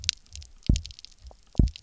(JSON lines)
{"label": "biophony, double pulse", "recorder": "SoundTrap 300"}